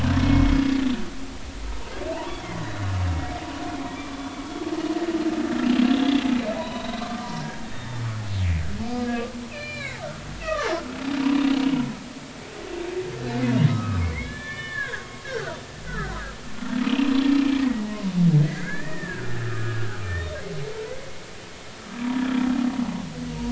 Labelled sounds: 0.1	0.4	humpback whale, 3.2 to 3.3 kHz
2.4	2.9	humpback whale, 1.6 to 4.0 kHz
6.5	8.0	humpback whale, 0.90 to 4.1 kHz
9.5	10.7	humpback whale, 1.0 to 4.8 kHz
13.6	15.6	humpback whale, 1.1 to 4.0 kHz
16.9	17.8	humpback whale, 1.8 to 3.0 kHz
18.5	20.4	humpback whale, 1.2 to 3.7 kHz
22.1	22.4	humpback whale, 3.3 to 3.6 kHz

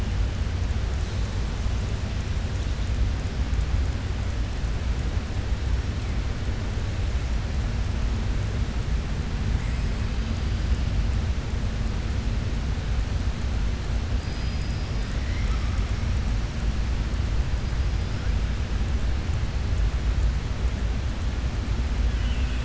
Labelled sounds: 14.1	15.7	killer whale, southern resident, 1.1 to 5.5 kHz
22.0	22.6	killer whale, southern resident, 2.0 to 3.5 kHz

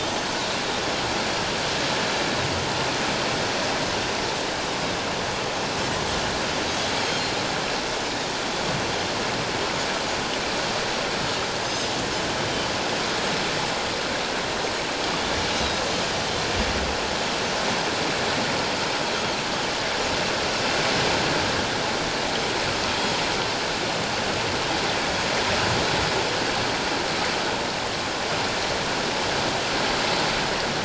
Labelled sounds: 7.0	7.2	Pacific white-sided dolphin, 3.1 to 3.4 kHz
11.6	11.9	Pacific white-sided dolphin, 5.0 to 6.5 kHz
15.5	15.8	Pacific white-sided dolphin, 3.7 to 3.9 kHz

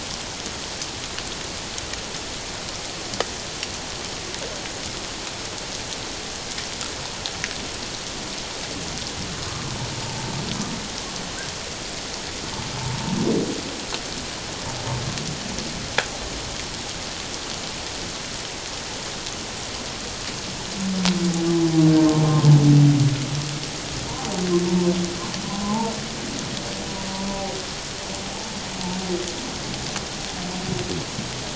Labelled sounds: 12.8	13.2	humpback whale, 0.84 to 0.97 kHz
25.4	25.9	humpback whale, 0.81 to 1.1 kHz

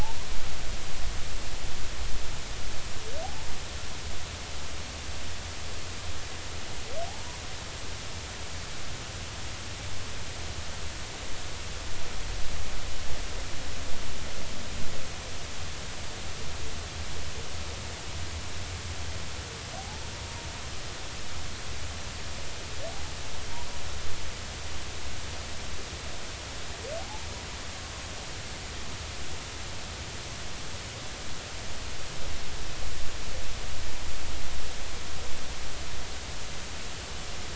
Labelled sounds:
3.2	3.5	humpback whale, 0.80 to 0.96 kHz
7.1	7.4	humpback whale, 0.80 to 1.1 kHz
19.8	20.0	humpback whale, 0.80 to 0.90 kHz
27.0	27.3	humpback whale, 0.80 to 0.96 kHz

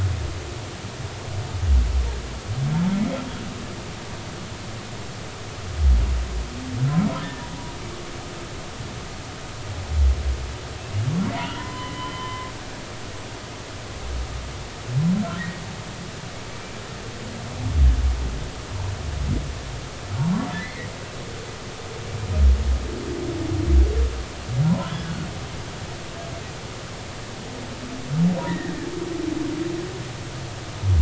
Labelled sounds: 7.2	7.5	humpback whale, 1.6 to 1.9 kHz
11.4	12.5	humpback whale, 0.90 to 3.4 kHz
15.4	15.6	humpback whale, 1.7 to 2.0 kHz
20.2	20.9	humpback whale, 0.80 to 2.3 kHz
24.6	25.0	humpback whale, 0.90 to 1.1 kHz
28.5	28.9	humpback whale, 1.6 to 2.0 kHz

